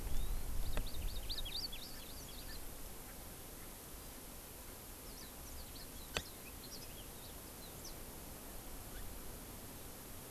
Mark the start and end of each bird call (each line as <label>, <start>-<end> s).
Yellow-fronted Canary (Crithagra mozambica), 0.0-0.5 s
Hawaii Amakihi (Chlorodrepanis virens), 0.6-2.6 s
Warbling White-eye (Zosterops japonicus), 5.0-8.0 s